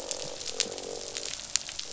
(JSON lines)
{"label": "biophony, croak", "recorder": "SoundTrap 500"}